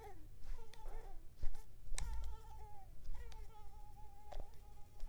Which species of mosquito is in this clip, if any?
Mansonia africanus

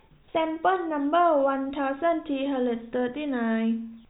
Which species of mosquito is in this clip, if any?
no mosquito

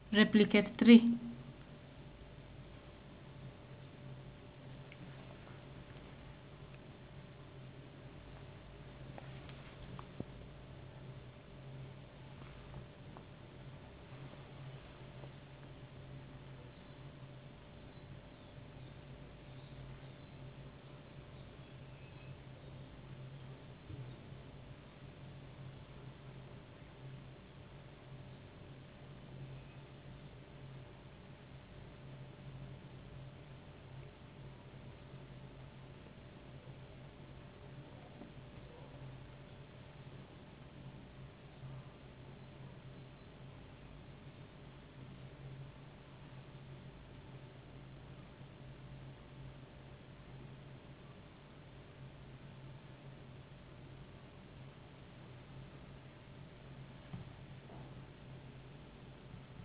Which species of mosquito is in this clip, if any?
no mosquito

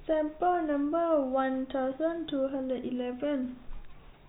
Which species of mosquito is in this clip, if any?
no mosquito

